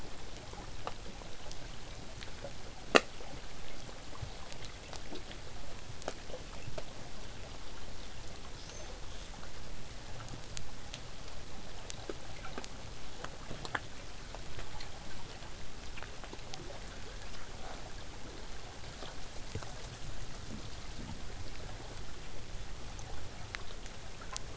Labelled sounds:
8.6	8.9	killer whale, southern resident, 3.2 to 7.0 kHz

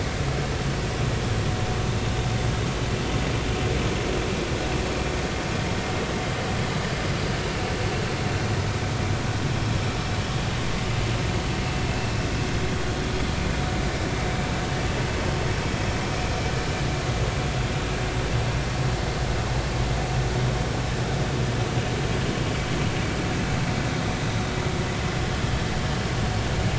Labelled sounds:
21.7	21.9	vessel noise, 2.8 to 2.9 kHz

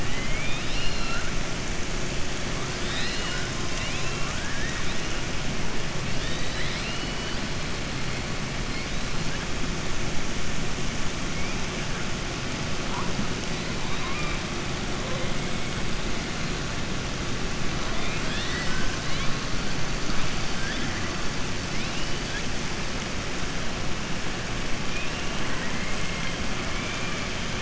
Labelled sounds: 0.0	1.3	killer whale, southern resident, 1.4 to 5.7 kHz
3.7	5.0	killer whale, southern resident, 1.1 to 4.0 kHz
6.1	7.4	killer whale, southern resident, 1.8 to 5.1 kHz
13.8	14.4	killer whale, southern resident, 1.0 to 4.1 kHz
17.9	18.9	killer whale, southern resident, 1.0 to 5.4 kHz
26.7	27.2	killer whale, southern resident, 2.2 to 3.1 kHz

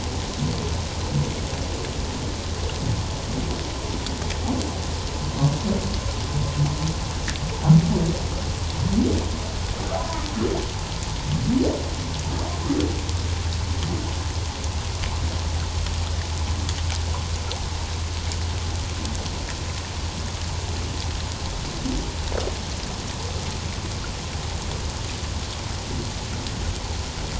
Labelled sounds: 10.0	10.2	humpback whale, 0.91 to 1.1 kHz

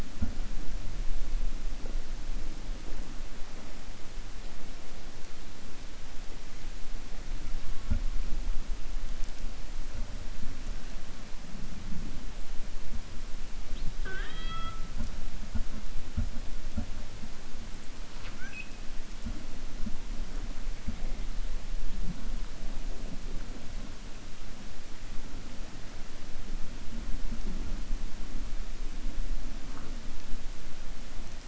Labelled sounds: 13.9	14.8	killer whale, 0.38 to 4.7 kHz

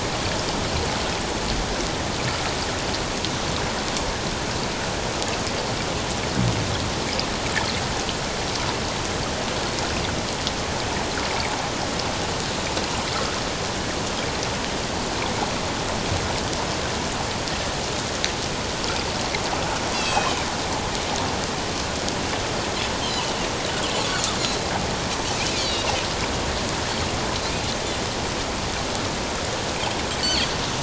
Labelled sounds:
19.9	20.5	Pacific white-sided dolphin, 2.2 to 6.2 kHz
23.0	23.3	Pacific white-sided dolphin, 2.8 to 3.2 kHz
24.4	24.6	Pacific white-sided dolphin, 3.8 to 4.2 kHz
25.6	25.9	Pacific white-sided dolphin, 2.8 to 4.8 kHz
30.2	30.5	Pacific white-sided dolphin, 4.2 to 4.7 kHz

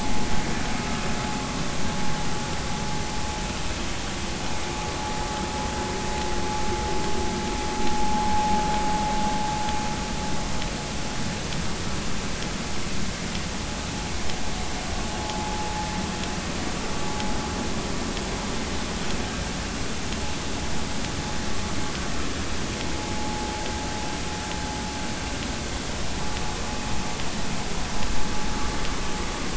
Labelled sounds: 15.2	15.5	vessel noise, 0.80 to 0.90 kHz
23.1	23.5	vessel noise, 0.80 to 0.90 kHz

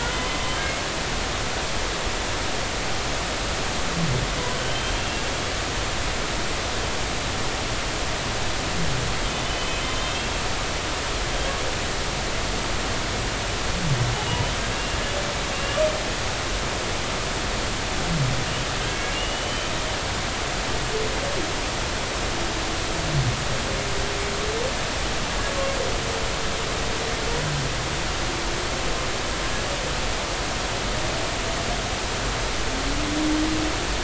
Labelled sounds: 0.1	0.4	humpback whale, 3.0 to 3.1 kHz
4.6	5.2	humpback whale, 2.7 to 3.2 kHz
9.4	10.4	humpback whale, 2.5 to 3.3 kHz
11.1	11.3	humpback whale, 2.6 to 2.8 kHz
14.2	15.8	humpback whale, 2.7 to 3.1 kHz
18.9	19.7	humpback whale, 2.2 to 3.1 kHz

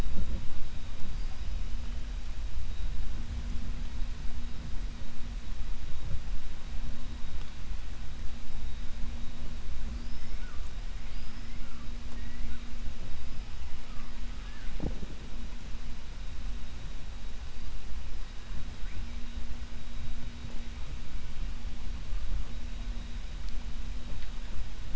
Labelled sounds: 9.9	10.4	killer whale, 4.5 to 5.5 kHz

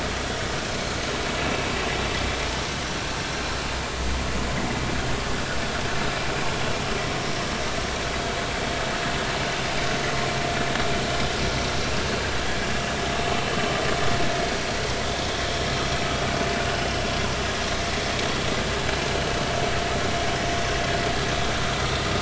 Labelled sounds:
15.0	15.4	vessel noise, 3.5 to 3.7 kHz
16.7	17.0	vessel noise, 2.8 to 3.1 kHz

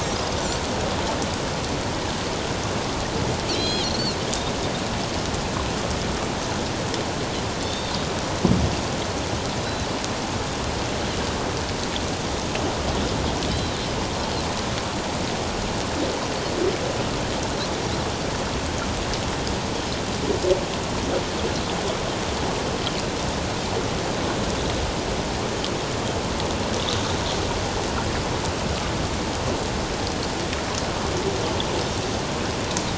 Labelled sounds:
3.5	4.2	Pacific white-sided dolphin, 2.3 to 6.7 kHz
7.6	7.9	Pacific white-sided dolphin, 3.4 to 3.7 kHz
13.5	13.8	Pacific white-sided dolphin, 3.0 to 4.1 kHz

